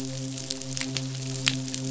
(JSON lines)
{"label": "biophony, midshipman", "recorder": "SoundTrap 500"}